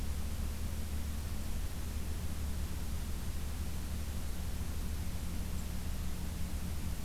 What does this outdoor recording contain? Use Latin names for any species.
forest ambience